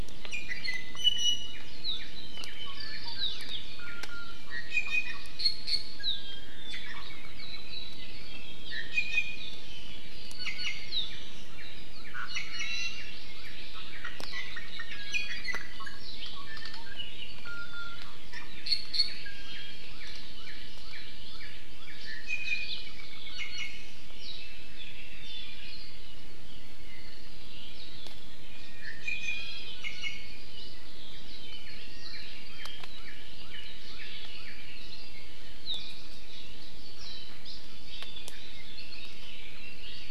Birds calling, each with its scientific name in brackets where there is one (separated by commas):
Northern Cardinal (Cardinalis cardinalis), Iiwi (Drepanis coccinea), Hawaii Amakihi (Chlorodrepanis virens)